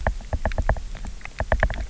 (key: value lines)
label: biophony, knock
recorder: SoundTrap 300